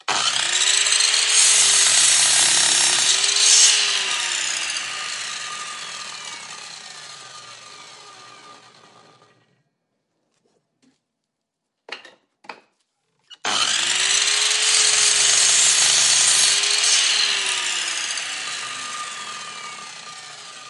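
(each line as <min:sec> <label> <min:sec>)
0:00.0 A circular saw buzzes loudly while slicing through wood. 0:03.6
0:03.5 An electric motor emits a high-pitched whir that fades over time after slicing wood. 0:07.5
0:11.8 A short burst of tapping sounds as a circular saw is turned on at a woodwork bench. 0:13.0
0:13.4 A circular saw buzzes loudly while slicing through wood. 0:17.7
0:17.8 An electric motor emits a high-pitched whir that fades over time after slicing wood. 0:20.7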